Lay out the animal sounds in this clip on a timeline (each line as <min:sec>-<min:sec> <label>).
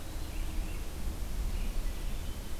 0:00.0-0:02.6 Red-eyed Vireo (Vireo olivaceus)